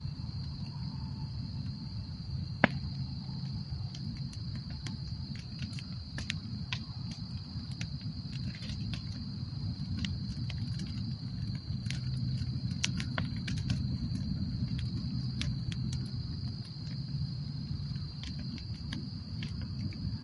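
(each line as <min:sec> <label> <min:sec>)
0:00.0 Crackling and sizzling sounds of a campfire. 0:20.2
0:00.0 Crickets chirping nonstop in the distance. 0:20.2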